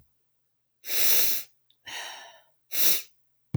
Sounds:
Sniff